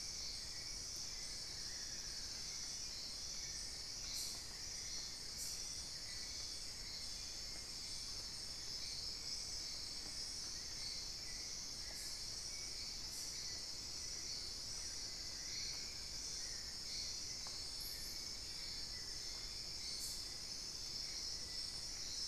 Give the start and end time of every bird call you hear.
1.0s-2.5s: Amazonian Barred-Woodcreeper (Dendrocolaptes certhia)
15.3s-16.0s: unidentified bird
19.1s-20.2s: Ringed Woodpecker (Celeus torquatus)

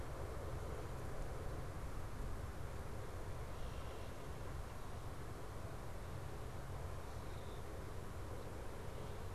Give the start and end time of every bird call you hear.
3.5s-4.2s: Red-winged Blackbird (Agelaius phoeniceus)

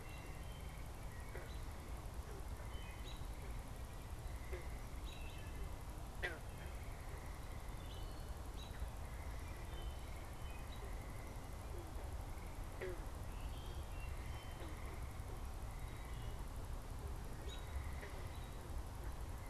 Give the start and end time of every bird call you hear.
0.0s-3.1s: Wood Thrush (Hylocichla mustelina)
0.0s-3.6s: American Robin (Turdus migratorius)
4.9s-10.9s: American Robin (Turdus migratorius)
5.0s-5.8s: Wood Thrush (Hylocichla mustelina)
13.2s-14.7s: Wood Thrush (Hylocichla mustelina)
17.4s-17.7s: American Robin (Turdus migratorius)

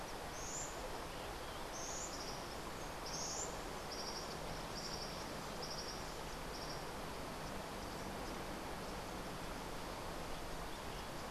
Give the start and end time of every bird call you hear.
0.2s-3.7s: Buff-throated Saltator (Saltator maximus)
2.8s-7.0s: Cabanis's Wren (Cantorchilus modestus)

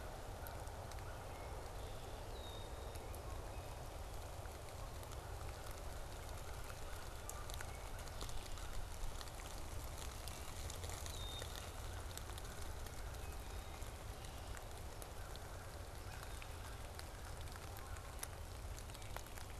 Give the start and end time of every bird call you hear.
0.0s-1.6s: Canada Goose (Branta canadensis)
1.2s-3.1s: Red-winged Blackbird (Agelaius phoeniceus)
6.7s-9.3s: American Crow (Corvus brachyrhynchos)
11.0s-11.5s: Red-winged Blackbird (Agelaius phoeniceus)
12.3s-13.7s: American Crow (Corvus brachyrhynchos)
16.0s-18.2s: American Crow (Corvus brachyrhynchos)

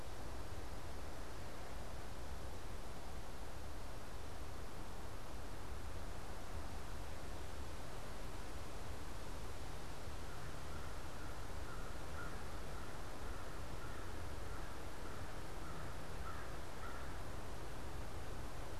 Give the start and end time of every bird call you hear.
10.1s-17.5s: American Crow (Corvus brachyrhynchos)

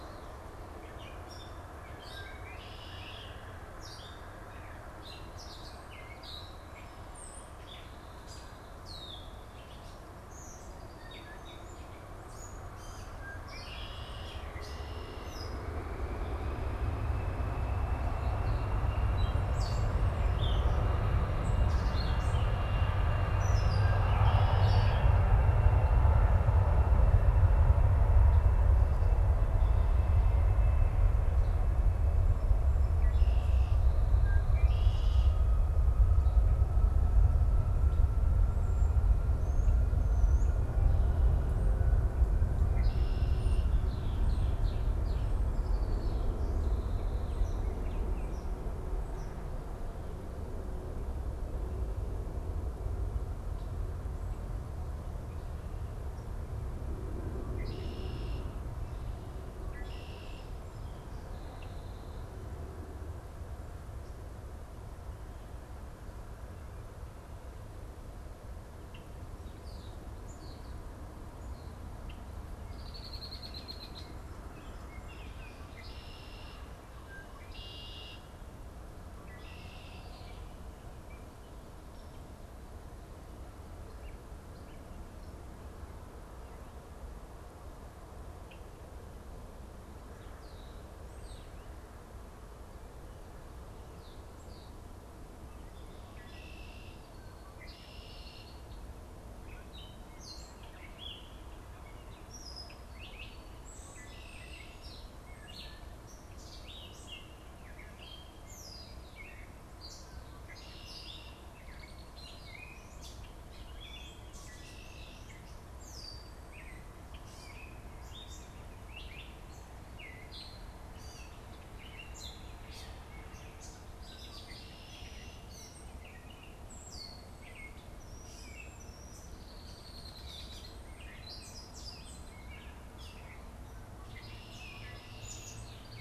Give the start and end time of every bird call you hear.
0.0s-25.3s: Gray Catbird (Dumetella carolinensis)
2.0s-3.6s: Red-winged Blackbird (Agelaius phoeniceus)
13.1s-15.9s: Red-winged Blackbird (Agelaius phoeniceus)
24.0s-25.2s: Red-winged Blackbird (Agelaius phoeniceus)
32.7s-35.7s: Red-winged Blackbird (Agelaius phoeniceus)
38.4s-40.9s: European Starling (Sturnus vulgaris)
42.6s-46.3s: Red-winged Blackbird (Agelaius phoeniceus)
47.5s-48.5s: Baltimore Oriole (Icterus galbula)
57.3s-60.7s: Red-winged Blackbird (Agelaius phoeniceus)
68.9s-69.2s: Red-winged Blackbird (Agelaius phoeniceus)
69.3s-71.9s: European Starling (Sturnus vulgaris)
72.0s-72.3s: Red-winged Blackbird (Agelaius phoeniceus)
72.7s-80.4s: Red-winged Blackbird (Agelaius phoeniceus)
90.1s-95.0s: European Starling (Sturnus vulgaris)
95.9s-97.1s: Red-winged Blackbird (Agelaius phoeniceus)
97.4s-98.9s: Red-winged Blackbird (Agelaius phoeniceus)
99.4s-136.0s: Gray Catbird (Dumetella carolinensis)
103.8s-104.9s: Red-winged Blackbird (Agelaius phoeniceus)
110.3s-111.4s: Red-winged Blackbird (Agelaius phoeniceus)
114.3s-115.5s: Red-winged Blackbird (Agelaius phoeniceus)
124.3s-125.5s: Red-winged Blackbird (Agelaius phoeniceus)
129.2s-130.9s: Red-winged Blackbird (Agelaius phoeniceus)
133.7s-135.8s: Red-winged Blackbird (Agelaius phoeniceus)

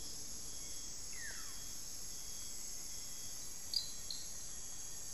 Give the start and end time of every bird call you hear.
0.0s-5.1s: Rufous-fronted Antthrush (Formicarius rufifrons)
0.8s-1.9s: Buff-throated Woodcreeper (Xiphorhynchus guttatus)

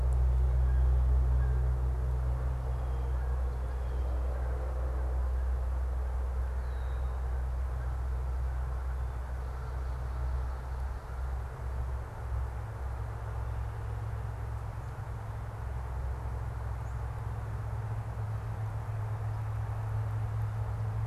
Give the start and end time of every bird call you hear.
0.0s-7.7s: Canada Goose (Branta canadensis)

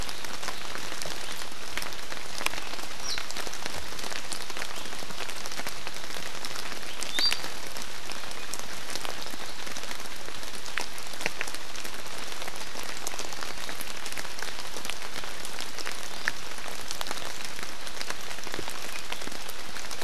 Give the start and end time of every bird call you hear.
3.0s-3.2s: Iiwi (Drepanis coccinea)
7.1s-7.4s: Iiwi (Drepanis coccinea)

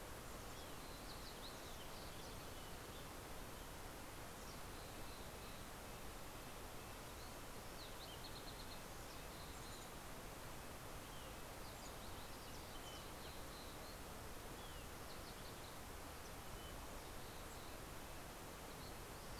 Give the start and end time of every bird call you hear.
0.0s-2.5s: Yellow-rumped Warbler (Setophaga coronata)
2.9s-14.3s: Red-breasted Nuthatch (Sitta canadensis)
3.8s-6.0s: Mountain Chickadee (Poecile gambeli)
6.7s-9.0s: Fox Sparrow (Passerella iliaca)
12.3s-14.0s: Mountain Chickadee (Poecile gambeli)
16.8s-18.2s: Mountain Chickadee (Poecile gambeli)

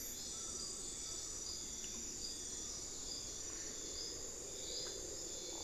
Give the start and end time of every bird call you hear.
0.0s-5.6s: Buckley's Forest-Falcon (Micrastur buckleyi)

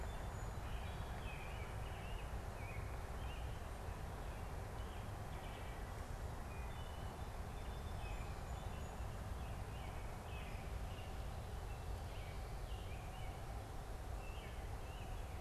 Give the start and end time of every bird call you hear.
0.0s-0.8s: Song Sparrow (Melospiza melodia)
0.0s-15.4s: American Robin (Turdus migratorius)
6.6s-9.0s: Song Sparrow (Melospiza melodia)

